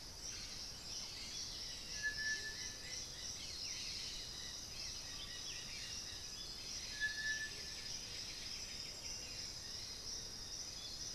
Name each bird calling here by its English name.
Black-billed Thrush, Dusky-headed Parakeet, Striped Cuckoo, Amazonian Motmot, Buff-throated Saltator, Russet-backed Oropendola, White-winged Becard, Thrush-like Wren